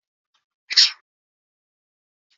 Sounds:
Sneeze